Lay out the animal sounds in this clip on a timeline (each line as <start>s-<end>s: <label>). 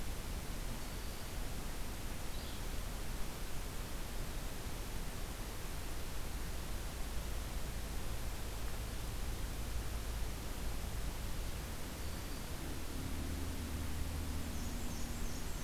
0.7s-1.4s: Black-throated Green Warbler (Setophaga virens)
2.3s-2.6s: Yellow-bellied Flycatcher (Empidonax flaviventris)
11.9s-12.6s: Black-throated Green Warbler (Setophaga virens)
14.4s-15.6s: Black-and-white Warbler (Mniotilta varia)